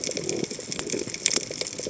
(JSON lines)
{"label": "biophony", "recorder": "HydroMoth"}